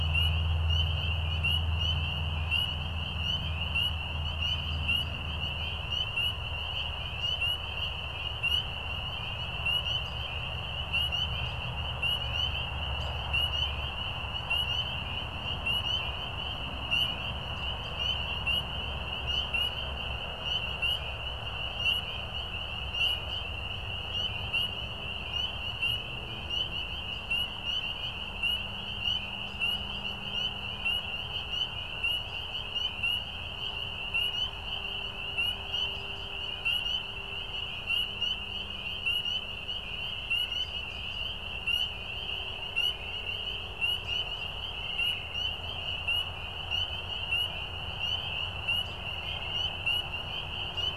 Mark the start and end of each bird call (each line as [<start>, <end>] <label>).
[11.32, 11.62] American Robin (Turdus migratorius)
[12.93, 13.22] American Robin (Turdus migratorius)
[50.62, 50.92] American Robin (Turdus migratorius)